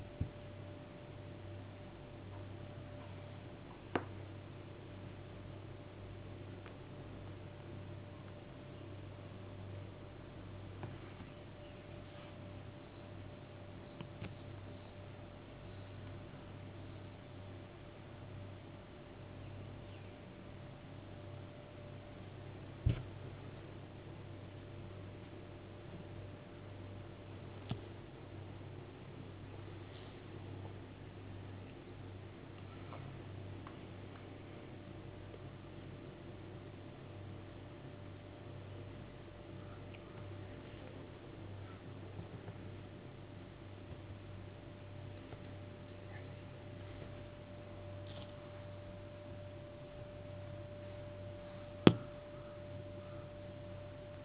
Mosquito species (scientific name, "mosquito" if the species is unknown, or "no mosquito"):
no mosquito